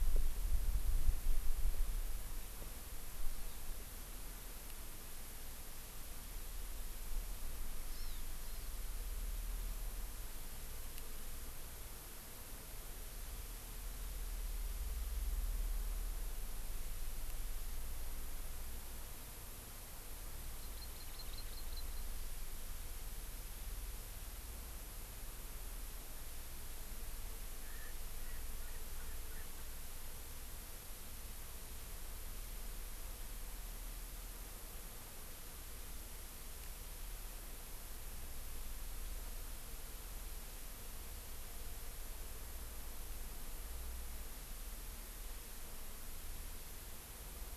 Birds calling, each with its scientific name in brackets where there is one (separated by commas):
Erckel's Francolin (Pternistis erckelii), Hawaii Amakihi (Chlorodrepanis virens)